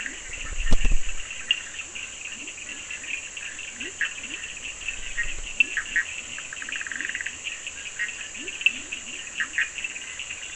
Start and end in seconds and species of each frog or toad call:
0.0	10.5	Bischoff's tree frog
0.0	10.5	Leptodactylus latrans
1.5	1.7	Cochran's lime tree frog
5.5	5.8	Cochran's lime tree frog
8.6	8.8	Cochran's lime tree frog
10:30pm

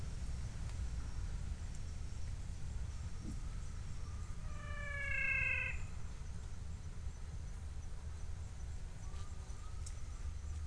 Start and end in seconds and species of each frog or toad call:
4.4	6.2	menwig frog
5:45pm

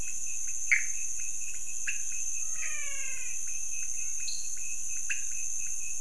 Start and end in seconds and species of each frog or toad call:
0.0	2.1	Pithecopus azureus
0.0	6.0	pointedbelly frog
2.4	3.5	menwig frog
4.2	4.6	dwarf tree frog
2:15am

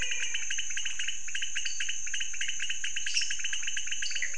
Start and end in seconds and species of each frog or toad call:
0.0	0.8	menwig frog
0.0	4.3	pointedbelly frog
1.6	2.0	dwarf tree frog
3.0	3.5	lesser tree frog
4.0	4.3	dwarf tree frog
1:30am

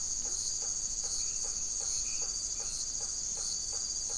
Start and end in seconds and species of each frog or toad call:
0.0	4.1	blacksmith tree frog
0.1	0.5	Leptodactylus latrans
1.1	2.8	Dendropsophus elegans
8:30pm

